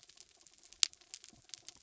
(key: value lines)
label: anthrophony, mechanical
recorder: SoundTrap 300